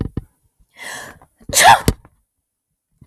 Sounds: Sneeze